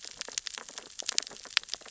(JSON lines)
{"label": "biophony, sea urchins (Echinidae)", "recorder": "SoundTrap 600 or HydroMoth"}